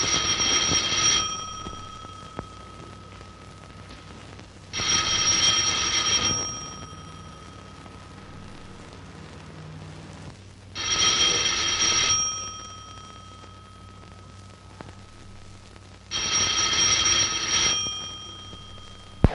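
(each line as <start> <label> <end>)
0.0 An old telephone rings loudly. 1.8
0.0 Steady crackling sounds. 19.3
4.7 An old telephone rings loudly. 6.9
10.8 An old telephone rings loudly. 12.5
16.1 An old telephone rings loudly. 18.1
19.2 A loud, bassy pop. 19.3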